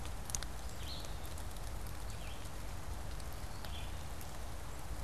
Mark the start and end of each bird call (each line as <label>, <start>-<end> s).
Gray Catbird (Dumetella carolinensis), 0.0-5.0 s
Red-eyed Vireo (Vireo olivaceus), 0.0-5.0 s